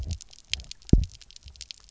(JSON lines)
{"label": "biophony, double pulse", "recorder": "SoundTrap 300"}